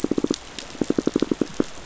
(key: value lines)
label: biophony, pulse
recorder: SoundTrap 500